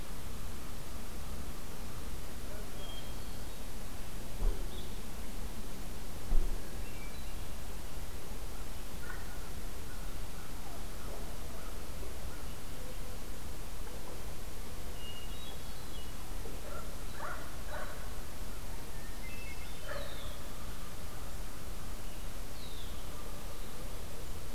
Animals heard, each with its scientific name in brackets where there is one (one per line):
American Crow (Corvus brachyrhynchos)
Red-winged Blackbird (Agelaius phoeniceus)
Hermit Thrush (Catharus guttatus)